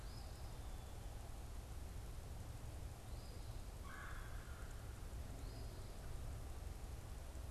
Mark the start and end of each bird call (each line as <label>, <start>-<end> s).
Eastern Phoebe (Sayornis phoebe), 0.0-6.0 s
Red-bellied Woodpecker (Melanerpes carolinus), 3.7-5.0 s